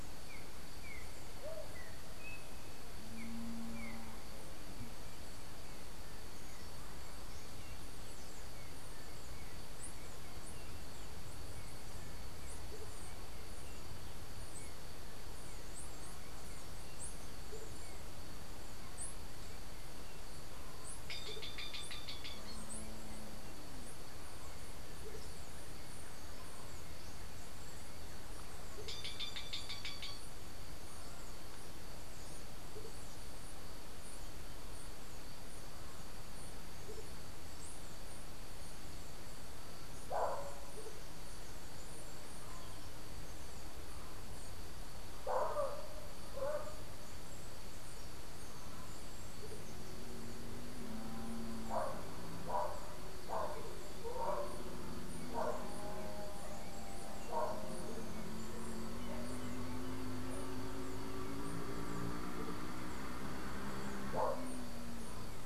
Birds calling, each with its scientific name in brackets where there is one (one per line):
unidentified bird
Green Jay (Cyanocorax yncas)
Yellow-backed Oriole (Icterus chrysater)
Andean Motmot (Momotus aequatorialis)